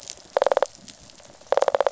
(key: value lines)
label: biophony, rattle response
recorder: SoundTrap 500